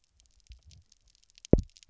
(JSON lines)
{"label": "biophony, double pulse", "recorder": "SoundTrap 300"}